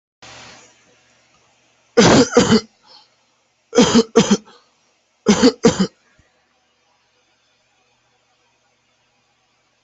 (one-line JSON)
{"expert_labels": [{"quality": "ok", "cough_type": "unknown", "dyspnea": false, "wheezing": false, "stridor": false, "choking": false, "congestion": false, "nothing": true, "diagnosis": "healthy cough", "severity": "pseudocough/healthy cough"}], "age": 18, "gender": "male", "respiratory_condition": true, "fever_muscle_pain": false, "status": "symptomatic"}